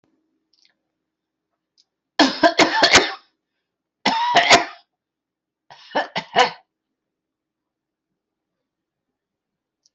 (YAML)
expert_labels:
- quality: good
  cough_type: dry
  dyspnea: false
  wheezing: false
  stridor: false
  choking: false
  congestion: false
  nothing: true
  diagnosis: upper respiratory tract infection
  severity: mild